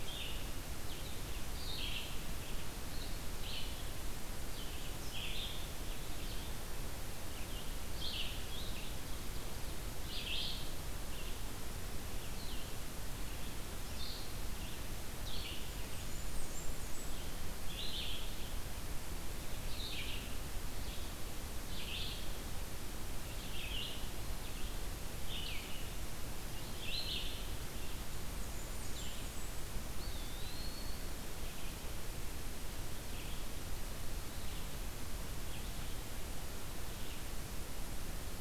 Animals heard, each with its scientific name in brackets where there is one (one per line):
Eastern Wood-Pewee (Contopus virens)
Blackburnian Warbler (Setophaga fusca)
Red-eyed Vireo (Vireo olivaceus)
Blue-headed Vireo (Vireo solitarius)